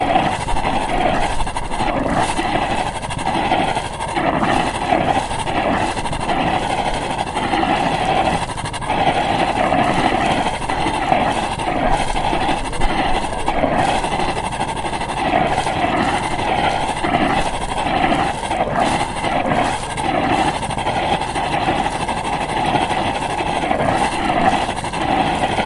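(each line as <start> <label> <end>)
0.0 The engine pipe of a yacht produces a rhythmic, pulsating, and steady sound. 25.7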